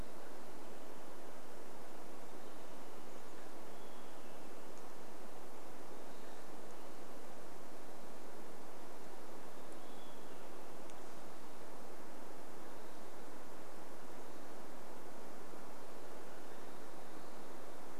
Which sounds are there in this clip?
Olive-sided Flycatcher call, Chestnut-backed Chickadee call, Olive-sided Flycatcher song, Western Wood-Pewee song